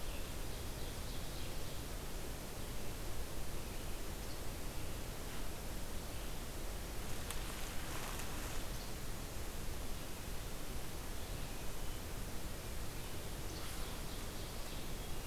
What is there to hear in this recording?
Ovenbird, Red-eyed Vireo